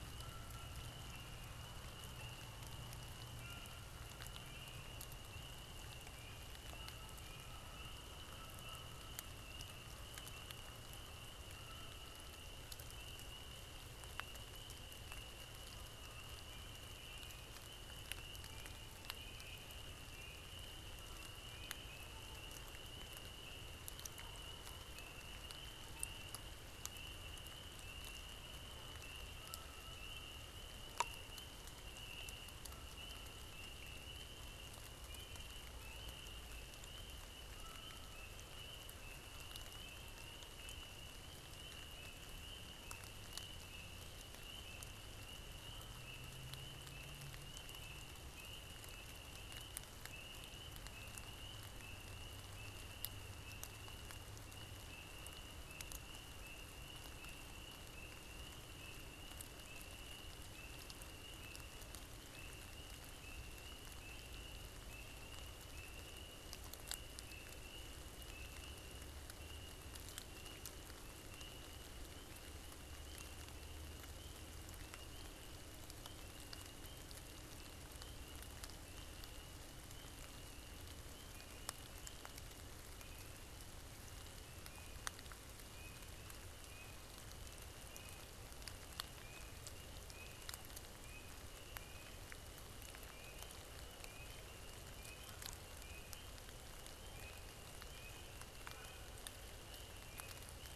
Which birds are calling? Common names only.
Canada Goose